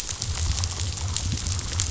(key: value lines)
label: biophony
recorder: SoundTrap 500